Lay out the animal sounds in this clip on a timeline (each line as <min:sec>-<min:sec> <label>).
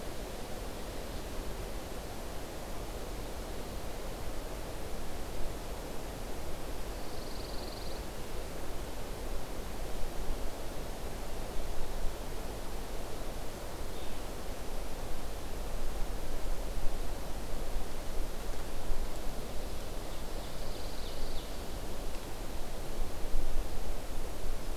0:06.8-0:08.0 Pine Warbler (Setophaga pinus)
0:19.3-0:21.9 Ovenbird (Seiurus aurocapilla)
0:20.3-0:21.5 Pine Warbler (Setophaga pinus)